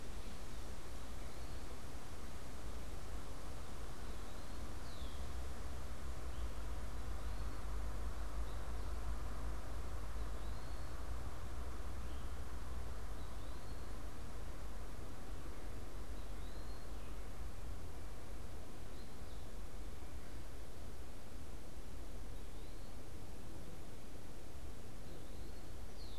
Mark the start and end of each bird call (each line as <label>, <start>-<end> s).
Eastern Wood-Pewee (Contopus virens), 0.0-14.1 s
Red-winged Blackbird (Agelaius phoeniceus), 4.7-5.4 s
Eastern Wood-Pewee (Contopus virens), 16.0-26.2 s